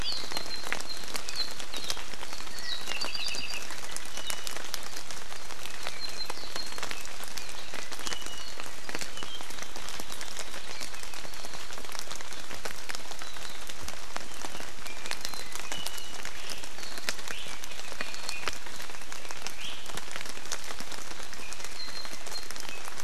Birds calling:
Iiwi (Drepanis coccinea), Apapane (Himatione sanguinea)

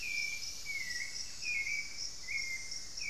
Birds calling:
Buff-breasted Wren (Cantorchilus leucotis), Elegant Woodcreeper (Xiphorhynchus elegans), Hauxwell's Thrush (Turdus hauxwelli)

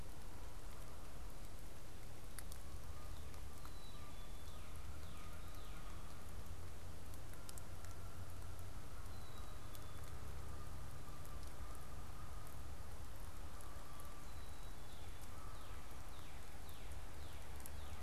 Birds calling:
Canada Goose (Branta canadensis), Black-capped Chickadee (Poecile atricapillus), Northern Cardinal (Cardinalis cardinalis)

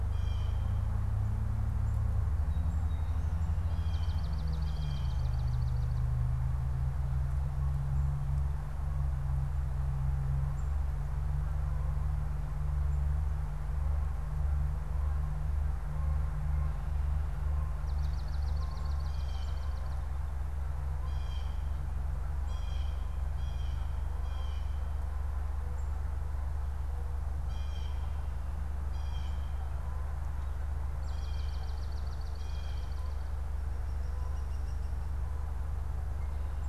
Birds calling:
Blue Jay (Cyanocitta cristata), Canada Goose (Branta canadensis), Swamp Sparrow (Melospiza georgiana)

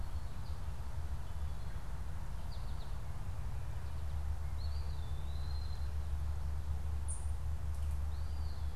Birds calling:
Ovenbird (Seiurus aurocapilla), Eastern Wood-Pewee (Contopus virens), American Goldfinch (Spinus tristis)

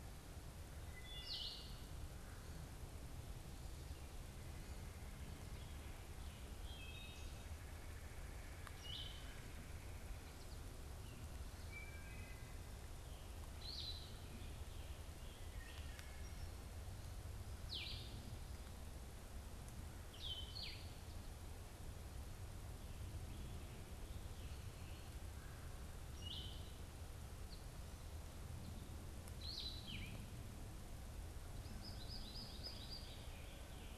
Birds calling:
Wood Thrush (Hylocichla mustelina), Blue-headed Vireo (Vireo solitarius), American Goldfinch (Spinus tristis)

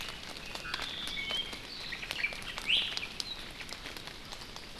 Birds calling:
Iiwi (Drepanis coccinea), Omao (Myadestes obscurus)

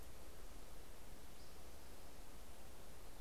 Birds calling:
Spotted Towhee (Pipilo maculatus)

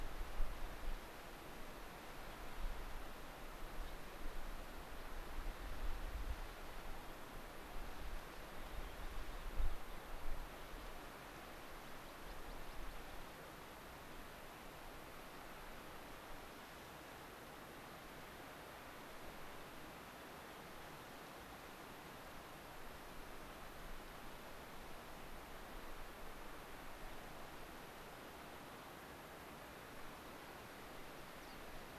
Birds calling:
unidentified bird, American Pipit (Anthus rubescens)

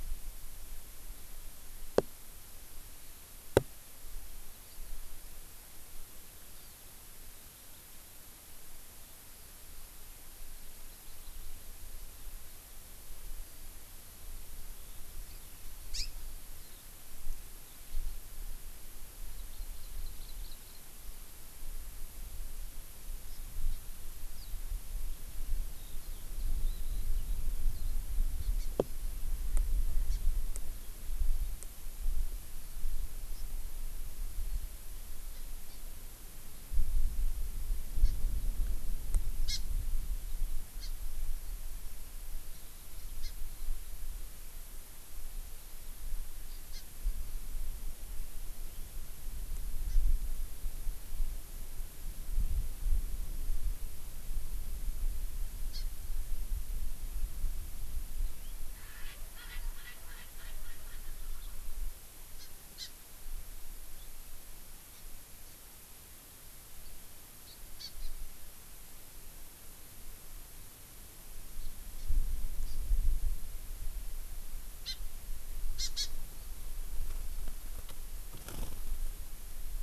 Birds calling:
Erckel's Francolin (Pternistis erckelii), Hawaii Amakihi (Chlorodrepanis virens)

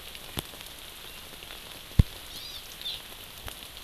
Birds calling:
Hawaii Amakihi (Chlorodrepanis virens)

